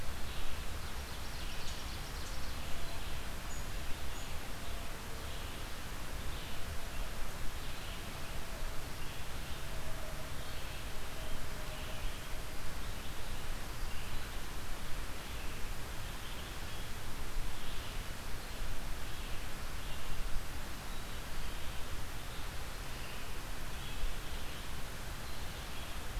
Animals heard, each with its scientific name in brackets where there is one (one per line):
Ovenbird (Seiurus aurocapilla)
Red-eyed Vireo (Vireo olivaceus)